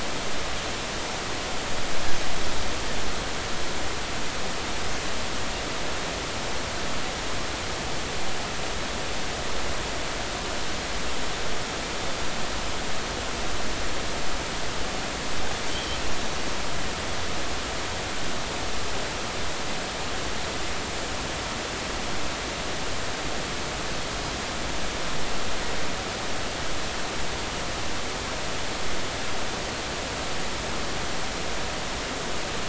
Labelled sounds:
15.7	16.0	Pacific white-sided dolphin, 3.0 to 3.4 kHz

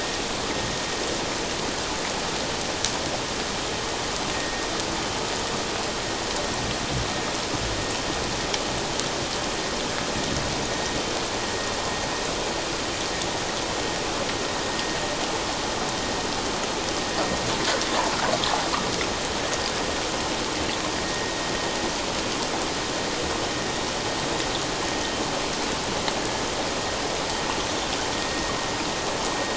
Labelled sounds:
4.3	4.7	vessel noise, 1.8 to 1.9 kHz
21.0	21.3	vessel noise, 1.8 to 1.9 kHz
26.2	26.4	vessel noise, 1.6 to 1.8 kHz

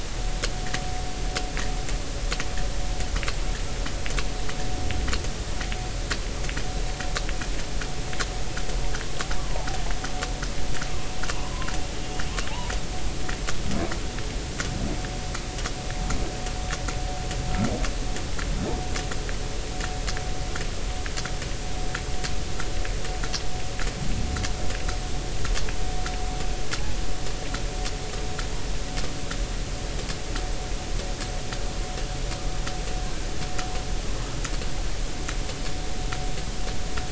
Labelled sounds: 9.4	9.7	humpback whale, 0.80 to 1.2 kHz

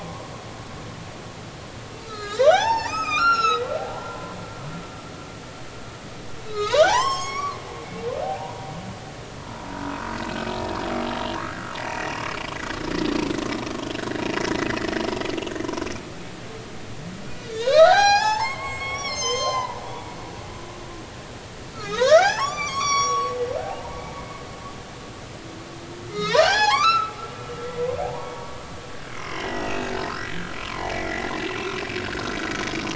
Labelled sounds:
2.0	3.6	humpback whale, 0.80 to 8.0 kHz
3.9	4.4	humpback whale, 0.93 to 1.1 kHz
6.4	8.5	humpback whale, 0.80 to 7.7 kHz
9.7	10.0	humpback whale, 1.2 to 1.6 kHz
17.5	19.8	humpback whale, 0.80 to 8.0 kHz
21.7	24.3	humpback whale, 0.80 to 8.0 kHz
26.0	27.1	humpback whale, 0.80 to 8.0 kHz
27.7	28.3	humpback whale, 0.80 to 1.2 kHz
29.1	29.9	humpback whale, 0.99 to 2.8 kHz
30.6	31.3	humpback whale, 0.80 to 2.2 kHz

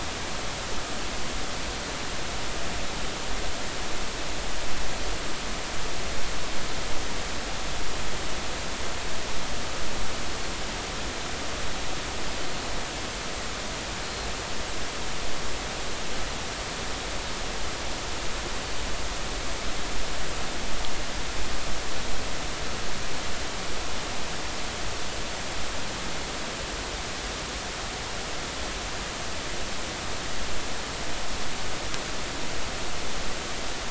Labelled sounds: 14.0	14.3	Pacific white-sided dolphin, 4.1 to 4.3 kHz

